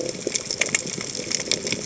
{"label": "biophony", "recorder": "HydroMoth"}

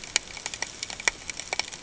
{"label": "ambient", "recorder": "HydroMoth"}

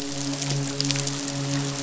{"label": "biophony, midshipman", "recorder": "SoundTrap 500"}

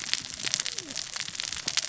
{"label": "biophony, cascading saw", "recorder": "SoundTrap 600 or HydroMoth"}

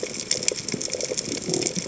{"label": "biophony", "recorder": "HydroMoth"}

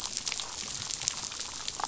{"label": "biophony, damselfish", "recorder": "SoundTrap 500"}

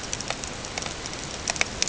{"label": "ambient", "recorder": "HydroMoth"}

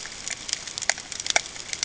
{"label": "ambient", "recorder": "HydroMoth"}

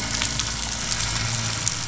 {"label": "anthrophony, boat engine", "recorder": "SoundTrap 500"}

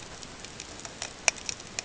{"label": "ambient", "recorder": "HydroMoth"}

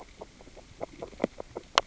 {"label": "biophony, grazing", "recorder": "SoundTrap 600 or HydroMoth"}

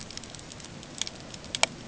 {"label": "ambient", "recorder": "HydroMoth"}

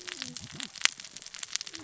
{"label": "biophony, cascading saw", "recorder": "SoundTrap 600 or HydroMoth"}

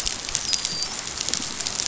{"label": "biophony, dolphin", "recorder": "SoundTrap 500"}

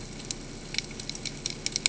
{"label": "ambient", "recorder": "HydroMoth"}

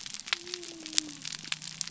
{"label": "biophony", "recorder": "SoundTrap 300"}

